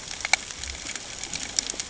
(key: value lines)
label: ambient
recorder: HydroMoth